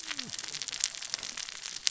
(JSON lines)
{"label": "biophony, cascading saw", "recorder": "SoundTrap 600 or HydroMoth"}